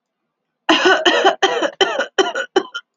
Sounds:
Cough